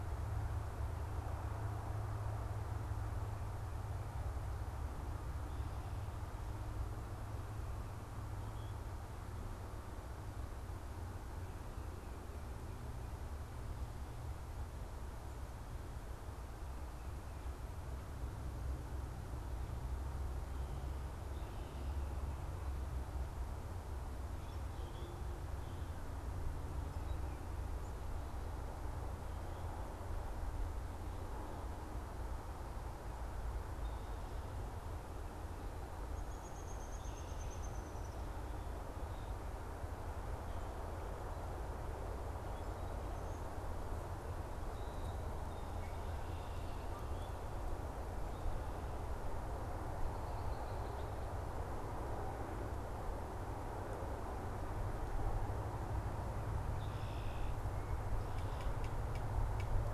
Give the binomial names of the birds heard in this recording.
Quiscalus quiscula, Dryobates pubescens, Agelaius phoeniceus